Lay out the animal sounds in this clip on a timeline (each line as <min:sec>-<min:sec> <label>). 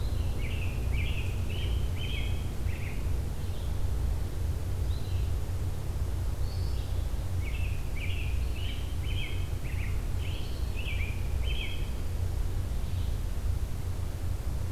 0:00.0-0:03.3 American Robin (Turdus migratorius)
0:03.2-0:07.1 Red-eyed Vireo (Vireo olivaceus)
0:07.2-0:12.0 American Robin (Turdus migratorius)
0:08.2-0:13.2 Red-eyed Vireo (Vireo olivaceus)